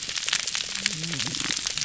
{"label": "biophony", "recorder": "SoundTrap 300"}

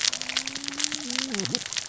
{"label": "biophony, cascading saw", "recorder": "SoundTrap 600 or HydroMoth"}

